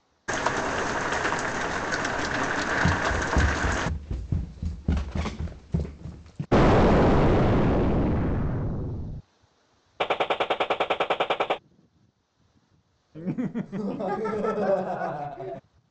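An unchanging, faint background noise sits about 40 dB below the sounds. At 0.28 seconds, rain is heard. Over it, at 2.82 seconds, someone runs. After that, at 6.51 seconds, an explosion is audible. Later, at 9.99 seconds, you can hear gunfire. Following that, at 13.14 seconds, someone chuckles.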